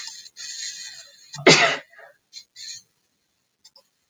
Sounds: Sneeze